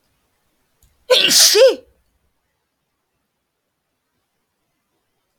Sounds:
Sneeze